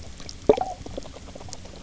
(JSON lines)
{"label": "biophony, knock croak", "recorder": "SoundTrap 300"}